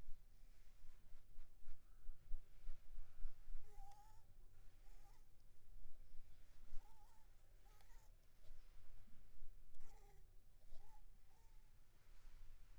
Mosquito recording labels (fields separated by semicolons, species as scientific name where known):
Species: Anopheles arabiensis; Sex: female; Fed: unfed; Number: one; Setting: cup